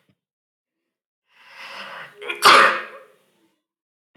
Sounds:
Sneeze